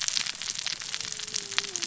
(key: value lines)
label: biophony, cascading saw
recorder: SoundTrap 600 or HydroMoth